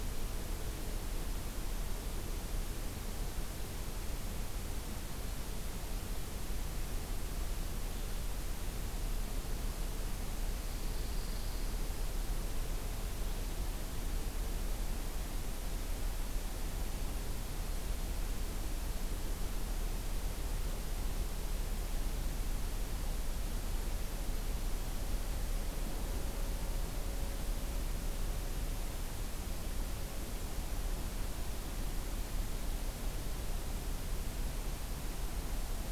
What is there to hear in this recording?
Pine Warbler